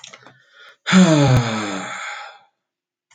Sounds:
Sigh